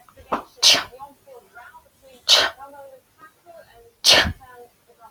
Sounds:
Sneeze